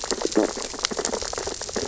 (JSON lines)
{"label": "biophony, sea urchins (Echinidae)", "recorder": "SoundTrap 600 or HydroMoth"}
{"label": "biophony, stridulation", "recorder": "SoundTrap 600 or HydroMoth"}